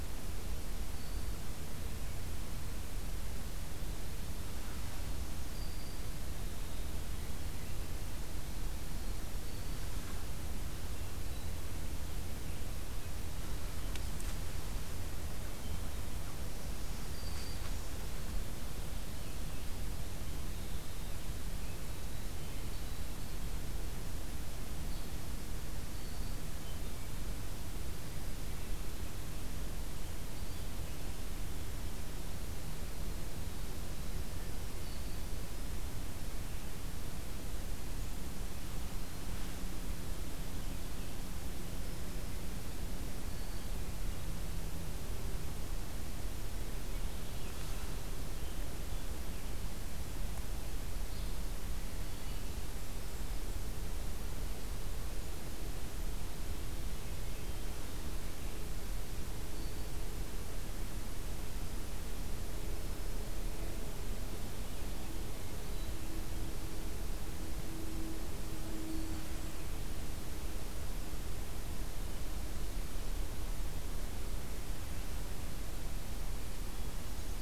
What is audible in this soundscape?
Black-throated Green Warbler, Blackburnian Warbler